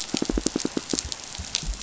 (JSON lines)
{"label": "biophony, pulse", "recorder": "SoundTrap 500"}